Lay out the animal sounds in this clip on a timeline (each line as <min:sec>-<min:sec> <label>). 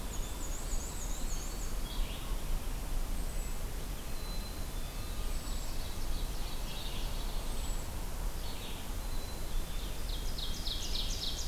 0:00.0-0:00.7 Black-capped Chickadee (Poecile atricapillus)
0:00.0-0:01.8 Black-and-white Warbler (Mniotilta varia)
0:00.0-0:07.9 unidentified call
0:00.0-0:11.5 Red-eyed Vireo (Vireo olivaceus)
0:00.5-0:01.8 Eastern Wood-Pewee (Contopus virens)
0:03.5-0:06.5 Red-breasted Nuthatch (Sitta canadensis)
0:04.0-0:05.0 Black-capped Chickadee (Poecile atricapillus)
0:04.9-0:07.2 Ovenbird (Seiurus aurocapilla)
0:09.9-0:11.5 Ovenbird (Seiurus aurocapilla)